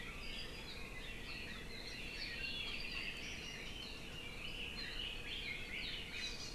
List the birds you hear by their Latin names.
Leiothrix lutea, Chlorodrepanis virens